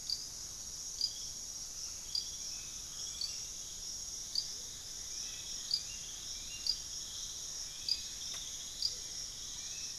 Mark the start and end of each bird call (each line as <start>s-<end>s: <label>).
0.0s-10.0s: Amazonian Motmot (Momotus momota)
0.0s-10.0s: Hauxwell's Thrush (Turdus hauxwelli)
6.5s-10.0s: Rufous-fronted Antthrush (Formicarius rufifrons)